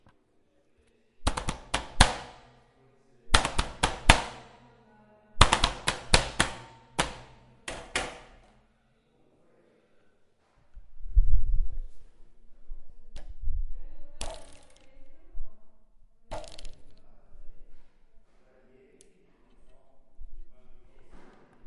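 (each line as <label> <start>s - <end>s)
Rhythmic clapping. 1.2s - 2.5s
Rhythmic clapping. 3.1s - 4.4s
A rhythmic clapping pattern. 5.3s - 8.3s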